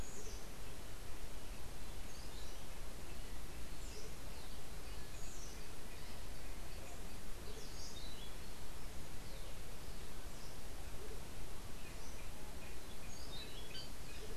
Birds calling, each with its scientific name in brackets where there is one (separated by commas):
Orange-billed Nightingale-Thrush (Catharus aurantiirostris), Andean Motmot (Momotus aequatorialis)